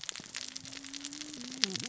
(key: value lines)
label: biophony, cascading saw
recorder: SoundTrap 600 or HydroMoth